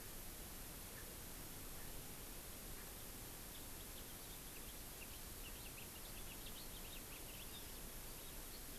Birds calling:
House Finch (Haemorhous mexicanus)

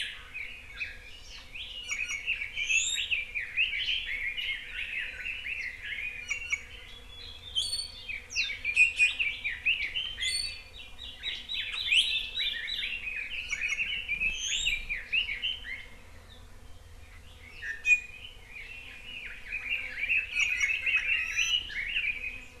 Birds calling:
Red-billed Leiothrix (Leiothrix lutea), Hawaii Akepa (Loxops coccineus), Iiwi (Drepanis coccinea)

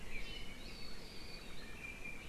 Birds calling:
Iiwi (Drepanis coccinea)

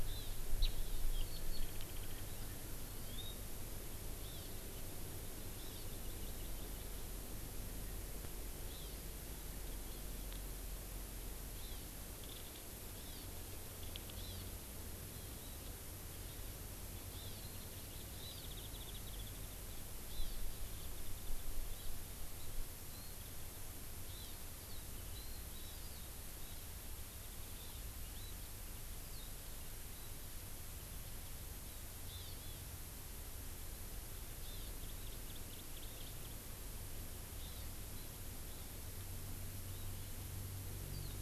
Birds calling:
Warbling White-eye (Zosterops japonicus), Hawaii Amakihi (Chlorodrepanis virens)

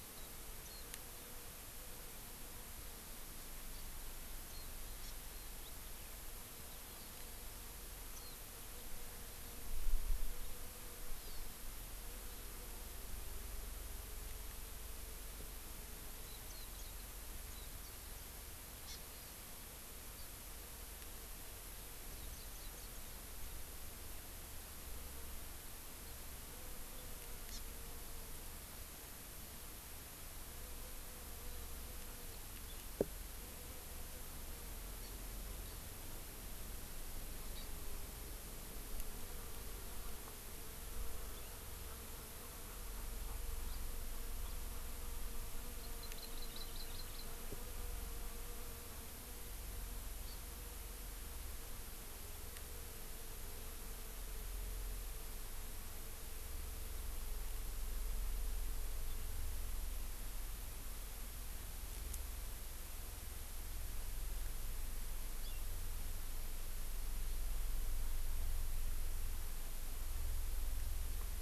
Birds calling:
House Finch (Haemorhous mexicanus), Warbling White-eye (Zosterops japonicus), Hawaii Amakihi (Chlorodrepanis virens)

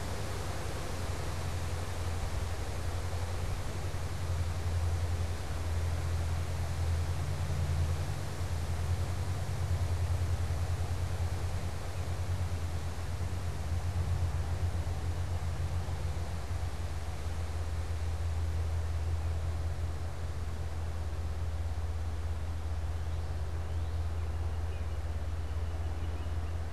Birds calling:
Northern Cardinal (Cardinalis cardinalis)

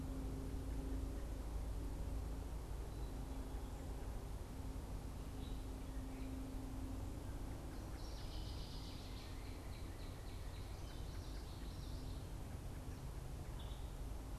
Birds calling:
American Robin (Turdus migratorius), Northern Cardinal (Cardinalis cardinalis), Northern Waterthrush (Parkesia noveboracensis)

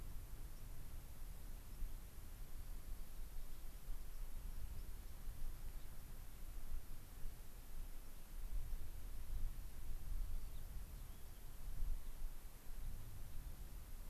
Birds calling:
Gray-crowned Rosy-Finch (Leucosticte tephrocotis), White-crowned Sparrow (Zonotrichia leucophrys)

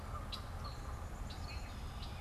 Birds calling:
Canada Goose (Branta canadensis)

